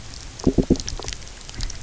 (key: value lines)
label: biophony
recorder: SoundTrap 300